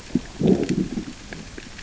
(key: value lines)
label: biophony, growl
recorder: SoundTrap 600 or HydroMoth